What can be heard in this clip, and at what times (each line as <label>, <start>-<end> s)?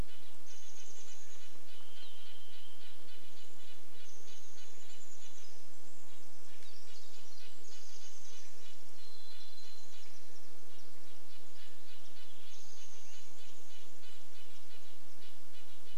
Chestnut-backed Chickadee call, 0-2 s
Varied Thrush song, 0-4 s
Red-breasted Nuthatch song, 0-16 s
insect buzz, 0-16 s
Chestnut-backed Chickadee call, 4-6 s
Pacific Wren song, 4-12 s
Chestnut-backed Chickadee call, 8-10 s
Varied Thrush song, 8-10 s